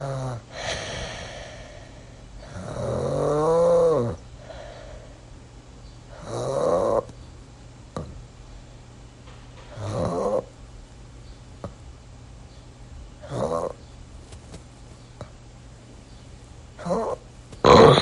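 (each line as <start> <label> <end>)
0.0 Someone snores loudly and unsteadily. 18.0
4.2 A bird chirps quietly in the distance. 8.6
9.2 Quiet rhythmic metallic hammering in the distance. 10.2
10.9 A bird chirps quietly in the distance. 17.3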